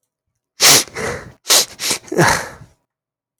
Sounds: Sniff